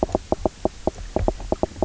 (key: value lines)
label: biophony, knock croak
recorder: SoundTrap 300